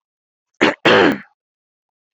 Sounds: Throat clearing